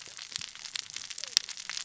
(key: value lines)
label: biophony, cascading saw
recorder: SoundTrap 600 or HydroMoth